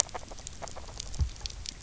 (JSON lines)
{"label": "biophony, grazing", "recorder": "SoundTrap 300"}